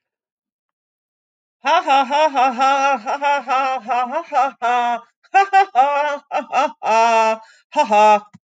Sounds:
Laughter